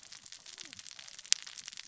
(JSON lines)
{"label": "biophony, cascading saw", "recorder": "SoundTrap 600 or HydroMoth"}